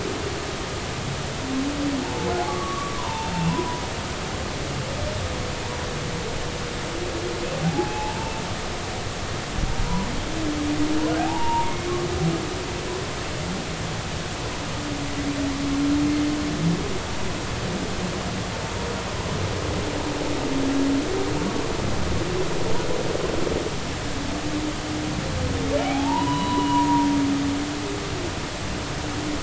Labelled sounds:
2.0	3.8	humpback whale, 0.83 to 2.8 kHz
7.6	9.2	humpback whale, 0.80 to 2.7 kHz
9.8	10.1	humpback whale, 0.93 to 1.0 kHz
11.2	11.9	humpback whale, 0.80 to 2.9 kHz
25.8	27.1	humpback whale, 0.80 to 4.0 kHz

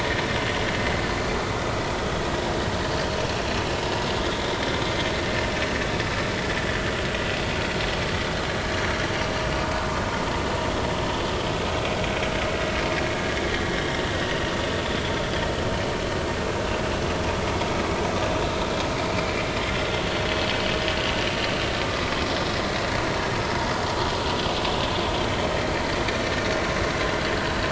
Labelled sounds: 4.4	4.8	vessel noise, 3.5 to 3.7 kHz
9.8	10.0	vessel noise, 0.93 to 1.2 kHz

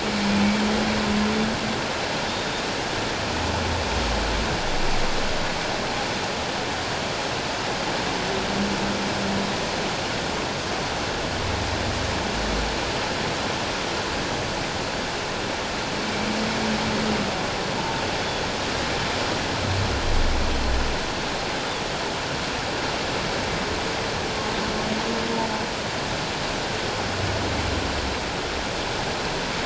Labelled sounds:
2.3	2.7	humpback whale, 3.5 to 3.7 kHz

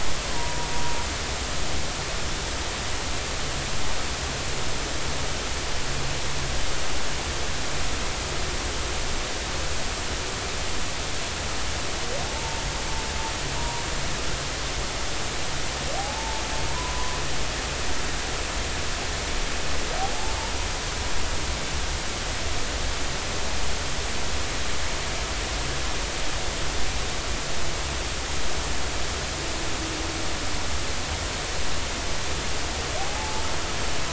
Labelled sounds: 0.3	0.7	humpback whale, 0.90 to 1.1 kHz
12.2	12.6	humpback whale, 0.80 to 0.99 kHz
13.6	13.8	humpback whale, 0.90 to 0.99 kHz
16.0	17.2	humpback whale, 0.80 to 1.1 kHz
33.0	33.5	humpback whale, 0.80 to 0.96 kHz

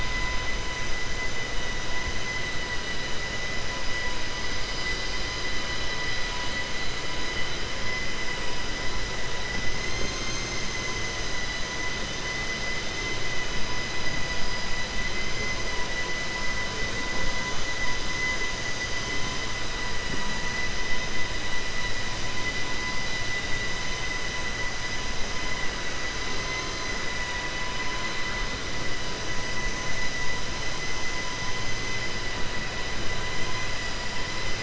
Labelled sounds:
26.4	26.9	vessel noise, 1.1 to 5.1 kHz

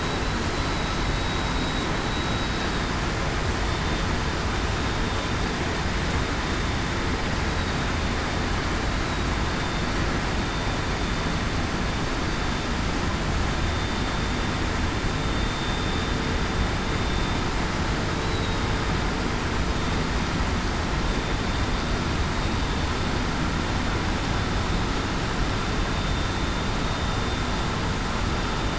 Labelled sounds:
1.1	1.9	vessel noise, 3.8 to 3.9 kHz
18.2	18.6	vessel noise, 3.7 to 4.0 kHz

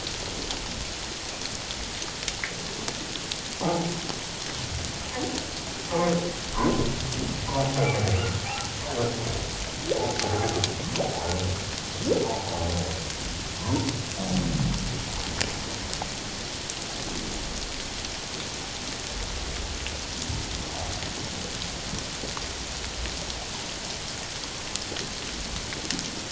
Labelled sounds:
3.6	3.9	humpback whale, 0.78 to 0.91 kHz
7.8	8.7	humpback whale, 0.78 to 2.4 kHz
10.2	10.5	humpback whale, 0.78 to 0.88 kHz
12.2	12.5	humpback whale, 0.78 to 1.0 kHz
13.6	13.9	humpback whale, 0.88 to 1.1 kHz

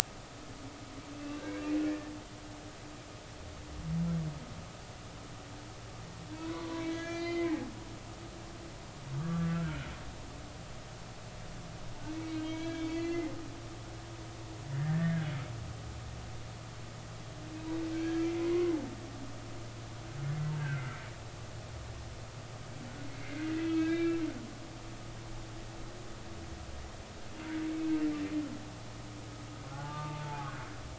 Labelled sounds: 1.2	2.1	humpback whale, 1.5 to 2.8 kHz
6.3	7.6	humpback whale, 0.90 to 4.8 kHz
9.2	9.8	humpback whale, 1.1 to 1.6 kHz
12.1	13.4	humpback whale, 1.6 to 4.5 kHz
14.8	15.2	humpback whale, 1.6 to 1.9 kHz
17.9	18.7	humpback whale, 0.99 to 1.7 kHz
20.6	21.0	humpback whale, 1.3 to 1.7 kHz
23.2	24.2	humpback whale, 1.2 to 3.8 kHz
29.7	30.5	humpback whale, 0.80 to 1.2 kHz

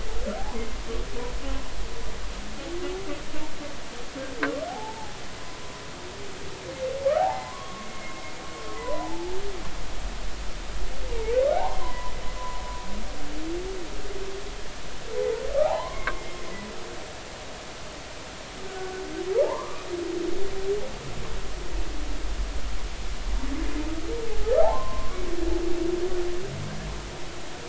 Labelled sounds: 0.4	0.8	humpback whale, 0.80 to 2.3 kHz
4.7	5.2	humpback whale, 0.80 to 0.96 kHz
7.1	9.3	humpback whale, 0.80 to 2.2 kHz
11.5	12.1	humpback whale, 0.80 to 1.1 kHz
15.6	16.2	humpback whale, 0.80 to 1.2 kHz
18.7	19.8	humpback whale, 0.80 to 1.5 kHz
24.6	25.2	humpback whale, 0.80 to 1.2 kHz

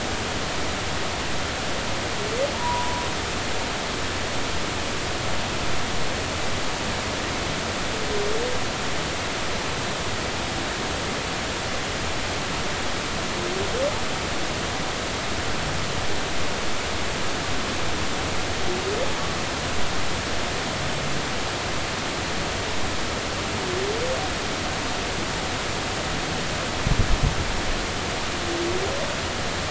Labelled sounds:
2.5	3.0	humpback whale, 0.90 to 1.0 kHz

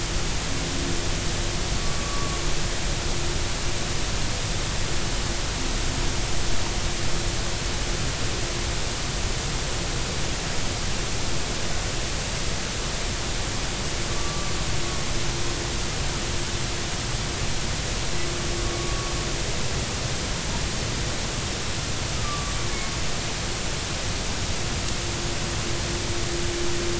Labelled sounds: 1.8	2.4	humpback whale, 1.1 to 1.2 kHz
14.1	14.5	humpback whale, 1.1 to 1.2 kHz
22.2	22.5	humpback whale, 1.1 to 1.3 kHz

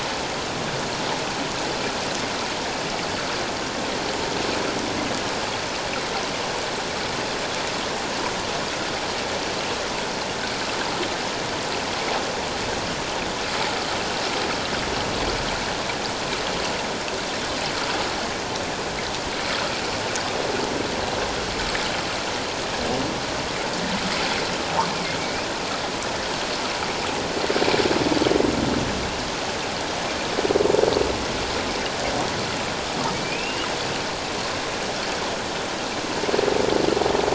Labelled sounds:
25.2	25.5	humpback whale, 2.2 to 2.7 kHz
33.1	33.7	humpback whale, 2.2 to 3.0 kHz

